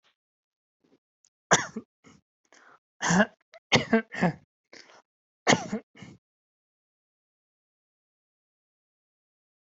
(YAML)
expert_labels:
- quality: good
  cough_type: dry
  dyspnea: false
  wheezing: false
  stridor: false
  choking: false
  congestion: false
  nothing: true
  diagnosis: healthy cough
  severity: pseudocough/healthy cough
age: 28
gender: male
respiratory_condition: true
fever_muscle_pain: false
status: symptomatic